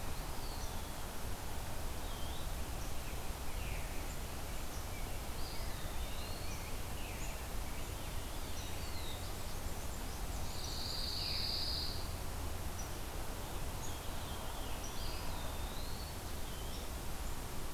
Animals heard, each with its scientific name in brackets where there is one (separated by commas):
Black-throated Blue Warbler (Setophaga caerulescens), Pine Warbler (Setophaga pinus), Veery (Catharus fuscescens), Rose-breasted Grosbeak (Pheucticus ludovicianus), Eastern Wood-Pewee (Contopus virens), Black-and-white Warbler (Mniotilta varia)